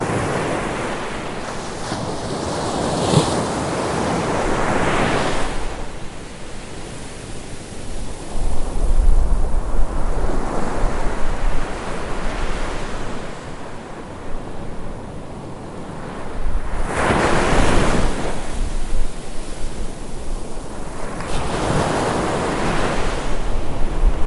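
Continuous waves crashing on the seashore. 0:00.0 - 0:06.6
Loud wind noise in the background. 0:08.3 - 0:14.1
Loud waves crashing on the seashore. 0:16.5 - 0:19.0
Loud waves crashing on the seashore. 0:21.2 - 0:24.3

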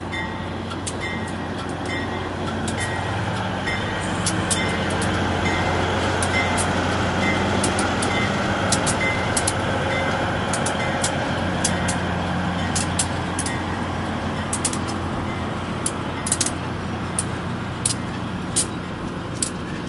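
The train approaches with its sound gradually growing louder and the distinct ringing of its bell, then the noise fades as it passes and moves away. 0:00.2 - 0:19.9

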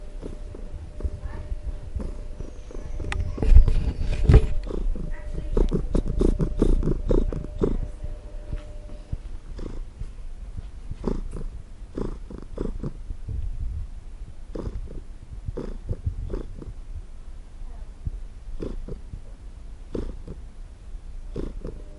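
Faint white noise ringing at a constant frequency in the background. 0:00.0 - 0:09.1
A cat is purring softly while being petted. 0:00.4 - 0:02.8
A cat is purring loudly and intensively while being petted. 0:05.3 - 0:08.1
A cat purrs with medium intensity while being petted. 0:09.4 - 0:09.9
A cat purrs with medium intensity while being petted. 0:10.9 - 0:13.1
A cat purrs with medium intensity while being petted. 0:14.4 - 0:17.0
A cat purrs with medium intensity while being petted. 0:18.5 - 0:19.1
A cat purrs with medium intensity while being petted. 0:19.9 - 0:20.4
A cat purrs with medium intensity while being petted. 0:21.1 - 0:21.8

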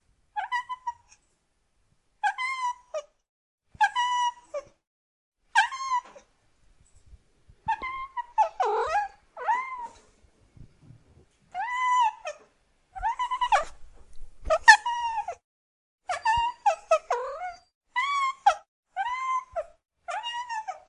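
A cat quietly meows indoors. 0:00.3 - 0:01.1
A cat quietly meows indoors. 0:02.2 - 0:03.1
A cat quietly meows indoors. 0:03.7 - 0:04.7
A cat quietly meows indoors. 0:05.5 - 0:06.2
A cat meows indoors. 0:07.6 - 0:10.0
A cat quietly meows indoors. 0:11.5 - 0:13.8
A cat meowing indoors. 0:14.4 - 0:15.4
A cat quietly meows indoors. 0:16.0 - 0:20.9

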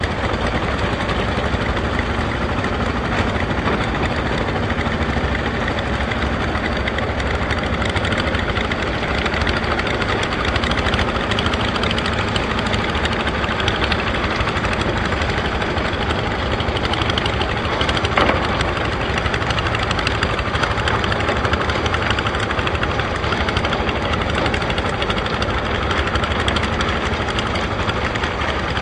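A barge with a deep, throaty engine moves across the water, producing a resonant chugging sound. 0:00.0 - 0:28.8

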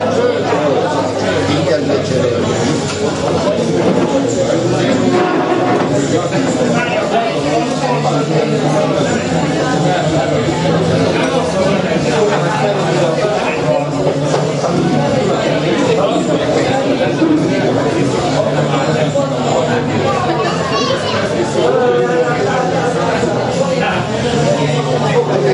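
Glass clinks clearly and sharply, with a high-pitched chime contrasting with the low hum of conversation and background noise. 0:00.0 - 0:25.5
Glasses clink sporadically in bursts of cheers, with some clinking more frequently than others, gradually fading as the toasts settle down. 0:00.0 - 0:25.5
Glasses clinking in a lively indoor celebration. 0:00.0 - 0:25.5
People are at a crowded party with glasses clinking together. 0:00.0 - 0:25.5

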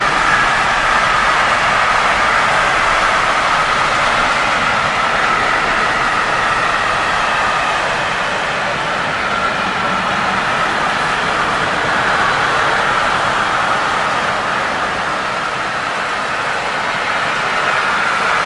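A train passes by loudly and scratchily at high speed. 0:00.1 - 0:18.5

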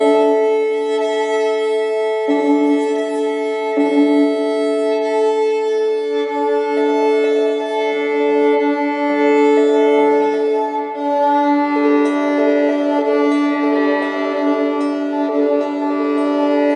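A violin is playing classical music. 0:00.0 - 0:16.8

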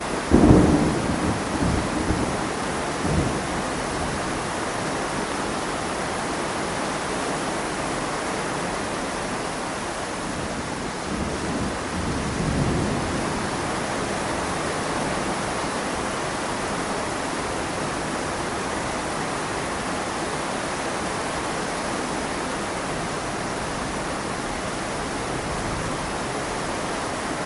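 Thunder roars loudly during rain. 0:00.1 - 0:03.6
Heavy rain with low-frequency noise. 0:03.7 - 0:27.5

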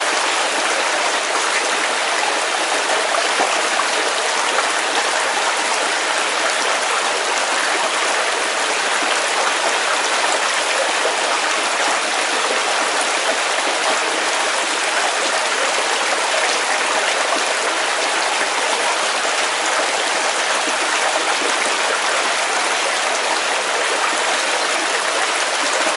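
A constant flow of water. 0:00.0 - 0:26.0

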